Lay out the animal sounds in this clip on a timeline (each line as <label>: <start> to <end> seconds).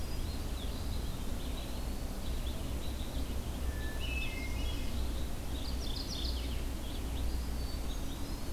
Hermit Thrush (Catharus guttatus): 0.0 to 0.5 seconds
Red-eyed Vireo (Vireo olivaceus): 0.0 to 8.5 seconds
Eastern Wood-Pewee (Contopus virens): 0.4 to 2.0 seconds
Hermit Thrush (Catharus guttatus): 3.6 to 5.0 seconds
Mourning Warbler (Geothlypis philadelphia): 5.4 to 6.5 seconds
Eastern Wood-Pewee (Contopus virens): 7.1 to 8.5 seconds
Hermit Thrush (Catharus guttatus): 7.4 to 8.5 seconds